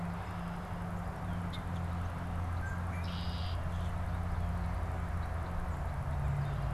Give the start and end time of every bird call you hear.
0.0s-6.7s: Red-winged Blackbird (Agelaius phoeniceus)
3.5s-4.0s: Common Grackle (Quiscalus quiscula)

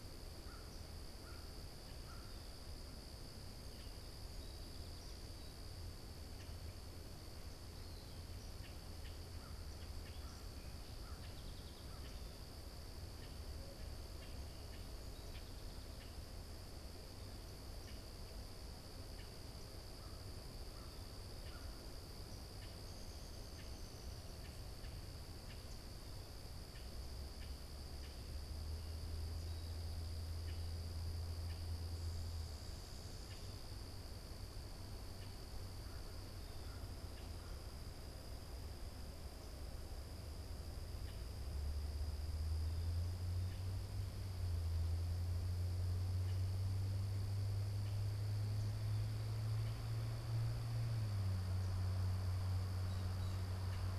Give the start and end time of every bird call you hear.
0.0s-2.4s: American Crow (Corvus brachyrhynchos)
0.0s-54.0s: Common Grackle (Quiscalus quiscula)
3.5s-6.0s: Song Sparrow (Melospiza melodia)
7.5s-8.5s: Eastern Wood-Pewee (Contopus virens)
9.7s-12.5s: Song Sparrow (Melospiza melodia)
10.0s-12.3s: American Crow (Corvus brachyrhynchos)
19.7s-22.0s: American Crow (Corvus brachyrhynchos)

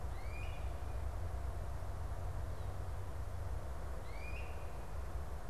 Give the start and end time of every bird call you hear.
0.0s-5.5s: Great Crested Flycatcher (Myiarchus crinitus)

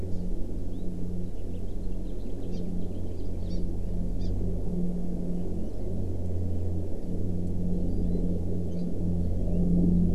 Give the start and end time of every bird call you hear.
0.0s-0.2s: Hawaii Amakihi (Chlorodrepanis virens)
0.7s-0.8s: Hawaii Amakihi (Chlorodrepanis virens)
1.3s-3.3s: House Finch (Haemorhous mexicanus)
2.5s-2.6s: Hawaii Amakihi (Chlorodrepanis virens)
3.4s-3.6s: Hawaii Amakihi (Chlorodrepanis virens)
4.2s-4.3s: Hawaii Amakihi (Chlorodrepanis virens)
7.8s-8.2s: Hawaii Amakihi (Chlorodrepanis virens)
8.6s-8.8s: Hawaii Amakihi (Chlorodrepanis virens)

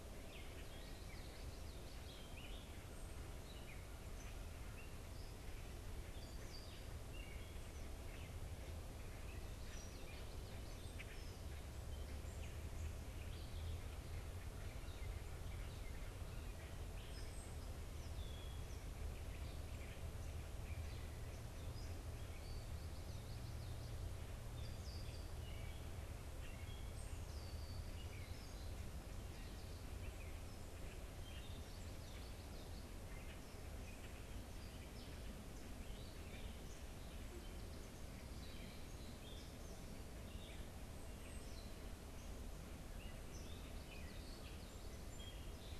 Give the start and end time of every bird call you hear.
0.0s-45.8s: Gray Catbird (Dumetella carolinensis)
0.9s-2.2s: Common Yellowthroat (Geothlypis trichas)
9.8s-10.9s: Common Yellowthroat (Geothlypis trichas)
45.1s-45.8s: Song Sparrow (Melospiza melodia)

